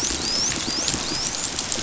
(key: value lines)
label: biophony
recorder: SoundTrap 500

label: biophony, dolphin
recorder: SoundTrap 500